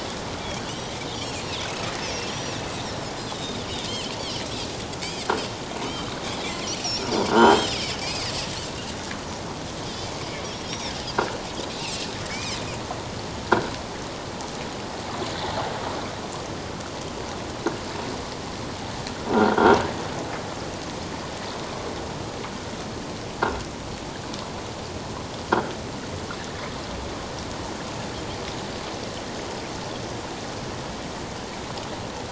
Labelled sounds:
1.1	1.5	Pacific white-sided dolphin, 2.9 to 4.7 kHz
2.3	2.8	Pacific white-sided dolphin, 2.5 to 5.9 kHz
3.3	3.6	Pacific white-sided dolphin, 3.5 to 3.9 kHz
3.9	4.1	Pacific white-sided dolphin, 2.5 to 3.3 kHz
6.2	8.3	Pacific white-sided dolphin, 1.3 to 7.8 kHz
7.4	7.7	croaking sound likely from a nearby submerged object, 6.0 to 6.5 kHz
9.8	10.9	Pacific white-sided dolphin, 3.0 to 5.9 kHz
11.8	12.6	Pacific white-sided dolphin, 2.0 to 2.9 kHz
13.4	13.7	croaking sound likely from a nearby submerged object, 1.3 to 1.7 kHz
19.3	19.8	croaking sound likely from a nearby submerged object, 1.3 to 3.4 kHz

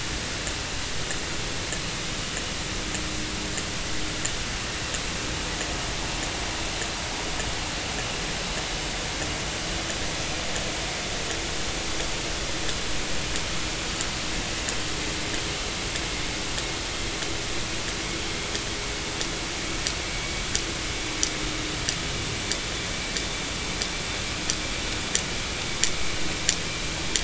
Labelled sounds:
20.0	20.3	vessel noise, 2.2 to 2.3 kHz

